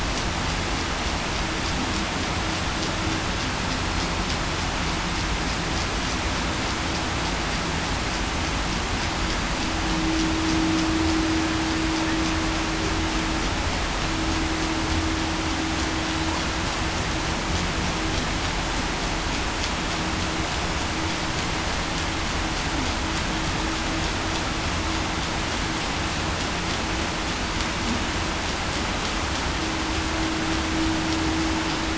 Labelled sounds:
9.9	10.3	vessel noise, 0.30 to 0.45 kHz

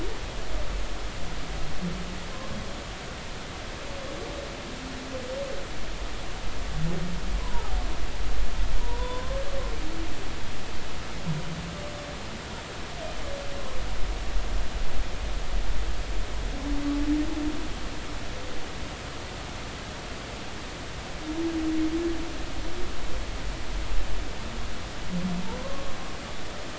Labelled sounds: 7.4	7.8	humpback whale, 0.80 to 1.1 kHz
8.8	9.4	humpback whale, 0.90 to 1.1 kHz
25.6	25.9	humpback whale, 0.99 to 1.1 kHz

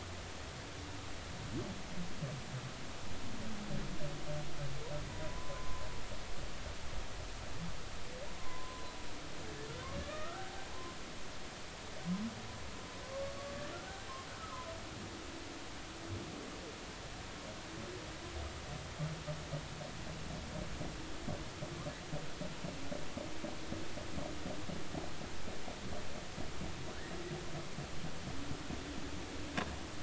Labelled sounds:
5.1	5.8	humpback whale, 0.93 to 1.1 kHz
8.4	8.9	humpback whale, 0.96 to 1.1 kHz
10.0	10.7	humpback whale, 0.80 to 2.6 kHz

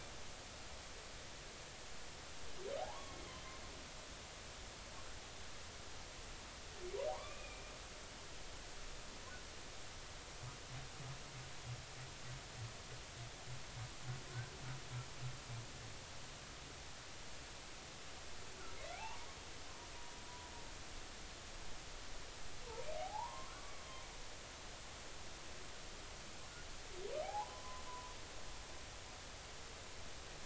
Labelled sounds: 2.8	3.2	humpback whale, 0.80 to 1.2 kHz
7.1	7.7	humpback whale, 0.80 to 2.6 kHz
18.9	19.3	humpback whale, 0.80 to 1.2 kHz
23.0	23.5	humpback whale, 0.80 to 1.2 kHz
27.2	28.1	humpback whale, 0.80 to 1.1 kHz

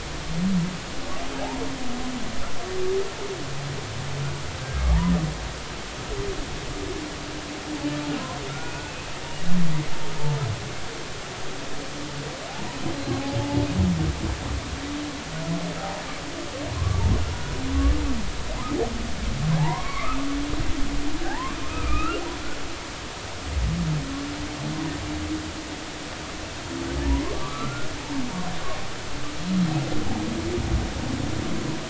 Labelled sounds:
4.6	4.8	humpback whale, 1.6 to 1.7 kHz
8.5	8.7	humpback whale, 1.3 to 1.5 kHz
16.8	17.0	humpback whale, 0.99 to 1.2 kHz
19.6	20.2	humpback whale, 0.80 to 2.4 kHz
21.2	22.2	humpback whale, 0.80 to 2.8 kHz
27.3	27.9	humpback whale, 0.93 to 1.5 kHz

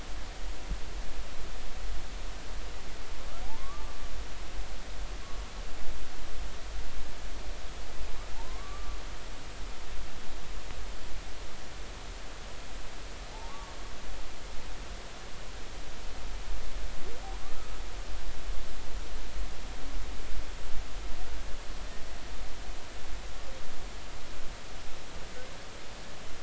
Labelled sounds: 3.4	4.0	humpback whale, 0.80 to 1.2 kHz
8.4	9.0	humpback whale, 0.80 to 1.2 kHz
13.5	13.7	humpback whale, 0.86 to 1.2 kHz
17.4	17.7	humpback whale, 1.1 to 1.4 kHz

